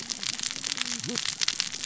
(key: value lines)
label: biophony, cascading saw
recorder: SoundTrap 600 or HydroMoth